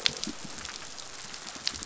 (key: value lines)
label: biophony
recorder: SoundTrap 500